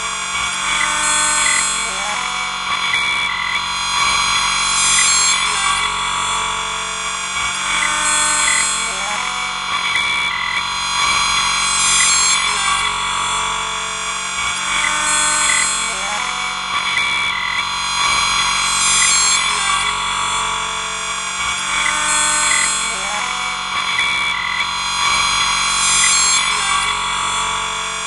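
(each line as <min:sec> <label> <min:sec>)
0:00.0 High-pitched synthetic electric robotic sounds. 0:28.1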